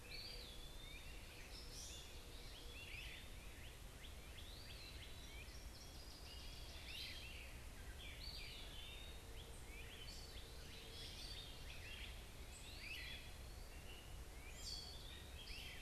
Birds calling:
Great Crested Flycatcher (Myiarchus crinitus)
Gray Catbird (Dumetella carolinensis)
Eastern Wood-Pewee (Contopus virens)
Northern Waterthrush (Parkesia noveboracensis)
Northern Cardinal (Cardinalis cardinalis)
Common Yellowthroat (Geothlypis trichas)

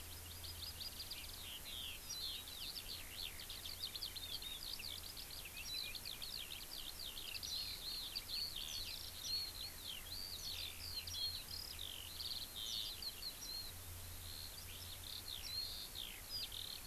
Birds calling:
Eurasian Skylark (Alauda arvensis)
Warbling White-eye (Zosterops japonicus)

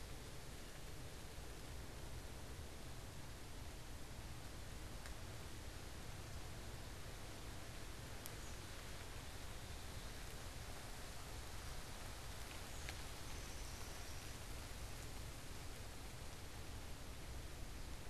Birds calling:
Black-capped Chickadee (Poecile atricapillus)

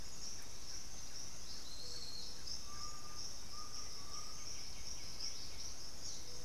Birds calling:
Undulated Tinamou (Crypturellus undulatus)
White-winged Becard (Pachyramphus polychopterus)

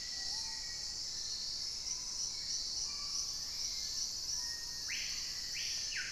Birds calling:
Screaming Piha (Lipaugus vociferans)
Dusky-capped Greenlet (Pachysylvia hypoxantha)
unidentified bird
Black-faced Antthrush (Formicarius analis)

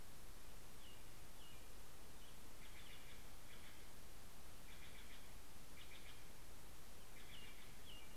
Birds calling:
American Robin (Turdus migratorius)
Steller's Jay (Cyanocitta stelleri)

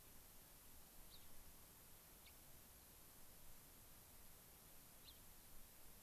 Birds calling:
Gray-crowned Rosy-Finch (Leucosticte tephrocotis)

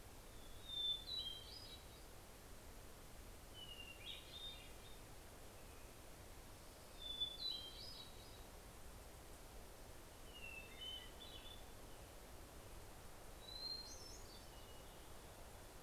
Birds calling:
Hermit Thrush (Catharus guttatus)

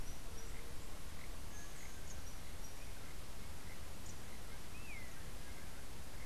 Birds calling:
Long-tailed Manakin (Chiroxiphia linearis)

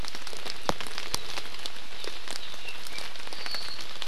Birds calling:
Apapane (Himatione sanguinea)

